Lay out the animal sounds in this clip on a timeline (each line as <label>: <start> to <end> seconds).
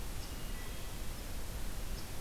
Wood Thrush (Hylocichla mustelina): 0.3 to 1.0 seconds